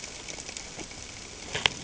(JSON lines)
{"label": "ambient", "recorder": "HydroMoth"}